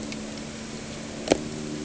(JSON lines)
{"label": "anthrophony, boat engine", "recorder": "HydroMoth"}